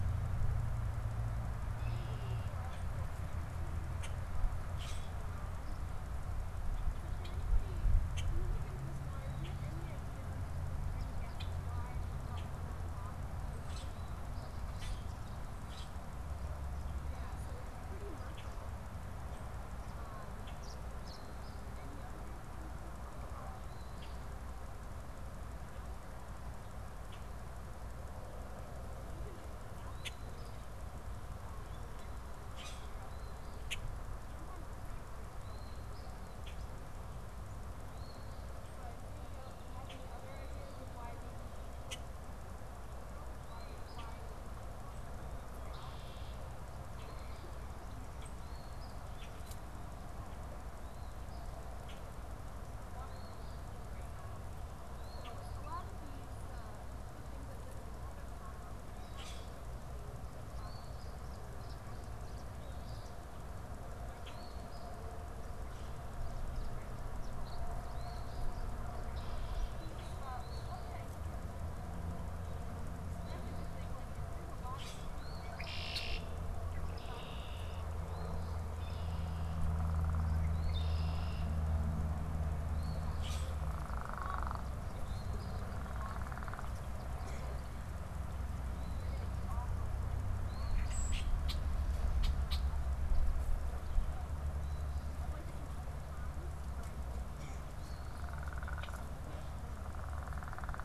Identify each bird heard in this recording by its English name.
Red-winged Blackbird, Common Grackle, unidentified bird, Tree Swallow, Eastern Phoebe